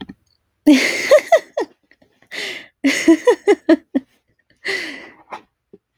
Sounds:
Laughter